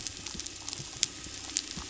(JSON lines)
{"label": "biophony", "recorder": "SoundTrap 300"}
{"label": "anthrophony, boat engine", "recorder": "SoundTrap 300"}